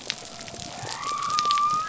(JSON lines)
{"label": "biophony", "recorder": "SoundTrap 300"}